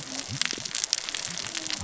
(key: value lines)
label: biophony, cascading saw
recorder: SoundTrap 600 or HydroMoth